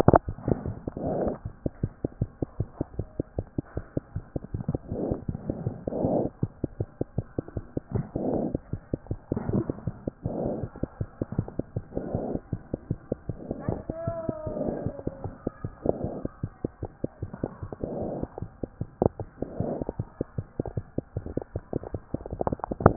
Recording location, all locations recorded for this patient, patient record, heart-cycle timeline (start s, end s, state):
mitral valve (MV)
mitral valve (MV)
#Age: Child
#Sex: Male
#Height: 88.0 cm
#Weight: 13.0 kg
#Pregnancy status: False
#Murmur: Absent
#Murmur locations: nan
#Most audible location: nan
#Systolic murmur timing: nan
#Systolic murmur shape: nan
#Systolic murmur grading: nan
#Systolic murmur pitch: nan
#Systolic murmur quality: nan
#Diastolic murmur timing: nan
#Diastolic murmur shape: nan
#Diastolic murmur grading: nan
#Diastolic murmur pitch: nan
#Diastolic murmur quality: nan
#Outcome: Abnormal
#Campaign: 2014 screening campaign
0.00	1.82	unannotated
1.82	1.92	S1
1.92	2.04	systole
2.04	2.08	S2
2.08	2.20	diastole
2.20	2.30	S1
2.30	2.42	systole
2.42	2.46	S2
2.46	2.58	diastole
2.58	2.68	S1
2.68	2.80	systole
2.80	2.86	S2
2.86	2.98	diastole
2.98	3.06	S1
3.06	3.18	systole
3.18	3.24	S2
3.24	3.38	diastole
3.38	3.46	S1
3.46	3.58	systole
3.58	3.64	S2
3.64	3.76	diastole
3.76	3.84	S1
3.84	3.96	systole
3.96	4.02	S2
4.02	4.16	diastole
4.16	4.24	S1
4.24	4.36	systole
4.36	4.42	S2
4.42	4.54	diastole
4.54	22.96	unannotated